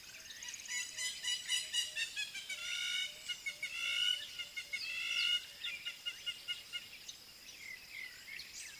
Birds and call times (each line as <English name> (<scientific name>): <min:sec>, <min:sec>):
Hamerkop (Scopus umbretta): 0:01.8, 0:03.9, 0:05.2
African Bare-eyed Thrush (Turdus tephronotus): 0:07.7